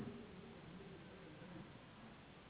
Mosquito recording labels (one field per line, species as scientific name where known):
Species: Anopheles gambiae s.s.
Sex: female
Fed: unfed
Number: one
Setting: insect culture